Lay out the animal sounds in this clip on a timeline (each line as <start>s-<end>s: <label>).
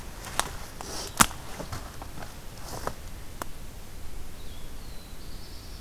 4.3s-5.8s: Black-throated Blue Warbler (Setophaga caerulescens)
4.4s-5.8s: Blue-headed Vireo (Vireo solitarius)